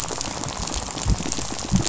{"label": "biophony, rattle", "recorder": "SoundTrap 500"}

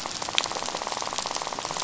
{"label": "biophony, rattle", "recorder": "SoundTrap 500"}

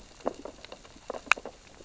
{"label": "biophony, sea urchins (Echinidae)", "recorder": "SoundTrap 600 or HydroMoth"}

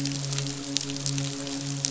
{"label": "biophony, midshipman", "recorder": "SoundTrap 500"}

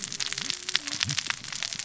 {"label": "biophony, cascading saw", "recorder": "SoundTrap 600 or HydroMoth"}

